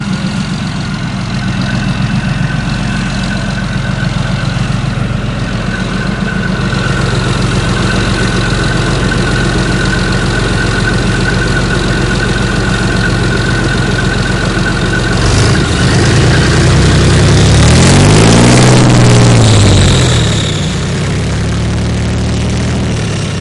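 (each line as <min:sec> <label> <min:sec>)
0:00.0 Loud engines of heavy trucks intensifying outside. 0:23.4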